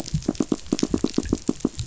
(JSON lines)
{"label": "biophony, knock", "recorder": "SoundTrap 500"}